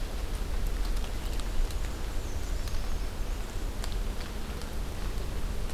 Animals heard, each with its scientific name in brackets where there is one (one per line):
Black-and-white Warbler (Mniotilta varia)